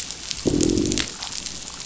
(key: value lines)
label: biophony, growl
recorder: SoundTrap 500